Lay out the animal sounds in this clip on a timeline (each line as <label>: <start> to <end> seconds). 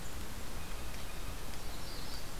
Blue Jay (Cyanocitta cristata): 0.5 to 1.6 seconds
Magnolia Warbler (Setophaga magnolia): 1.5 to 2.4 seconds